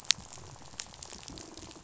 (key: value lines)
label: biophony, rattle
recorder: SoundTrap 500